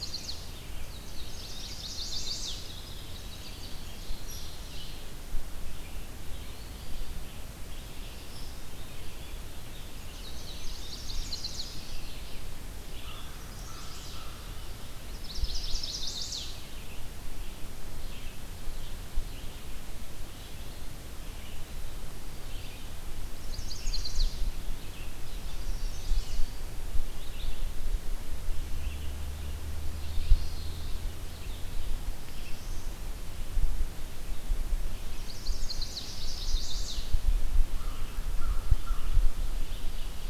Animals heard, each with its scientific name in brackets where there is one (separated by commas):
Eastern Wood-Pewee (Contopus virens), Red-eyed Vireo (Vireo olivaceus), Common Yellowthroat (Geothlypis trichas), Chestnut-sided Warbler (Setophaga pensylvanica), Ovenbird (Seiurus aurocapilla), Indigo Bunting (Passerina cyanea), Hairy Woodpecker (Dryobates villosus), American Crow (Corvus brachyrhynchos), Black-throated Blue Warbler (Setophaga caerulescens)